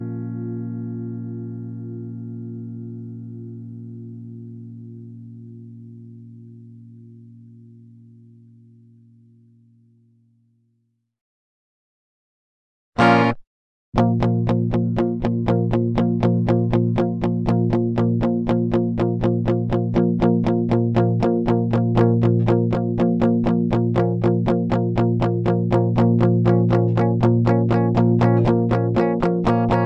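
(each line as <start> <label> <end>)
0.0 A note is played and stretched out harmoniously, fading over time. 11.1
12.8 A single guitar note is played. 13.4
13.9 A guitar chord is played repeatedly. 29.9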